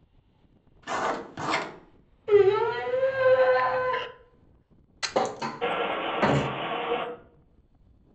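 At 0.82 seconds, there is the sound of writing. After that, at 2.27 seconds, someone cries. At 5.0 seconds, thumping can be heard. Meanwhile, at 5.61 seconds, you can hear an engine.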